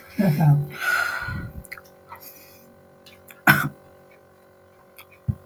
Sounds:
Sigh